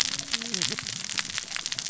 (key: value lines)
label: biophony, cascading saw
recorder: SoundTrap 600 or HydroMoth